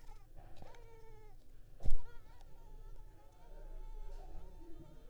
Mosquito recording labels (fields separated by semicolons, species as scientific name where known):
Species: Culex pipiens complex; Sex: female; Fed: unfed; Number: one; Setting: cup